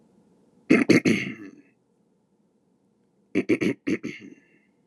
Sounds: Throat clearing